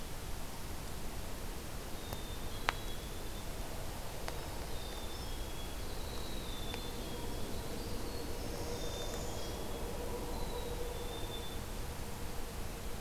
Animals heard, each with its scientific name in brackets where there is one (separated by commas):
Northern Parula (Setophaga americana), Winter Wren (Troglodytes hiemalis), Black-capped Chickadee (Poecile atricapillus)